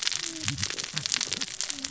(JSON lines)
{"label": "biophony, cascading saw", "recorder": "SoundTrap 600 or HydroMoth"}